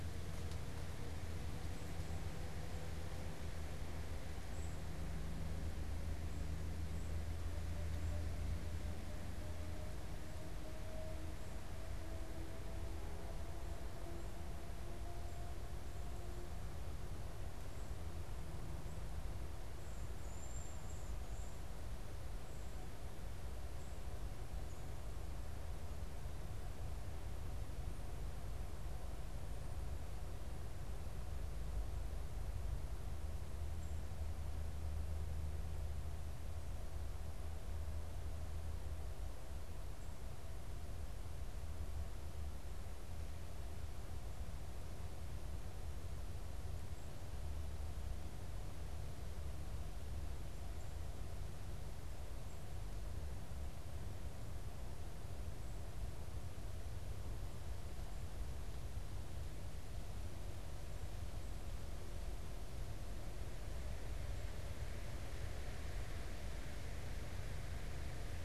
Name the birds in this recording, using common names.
Golden-crowned Kinglet, Cedar Waxwing